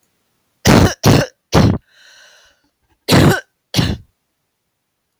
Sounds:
Cough